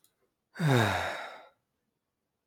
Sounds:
Sigh